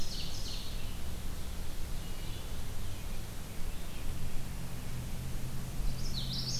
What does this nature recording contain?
Ovenbird, Red-eyed Vireo, Common Yellowthroat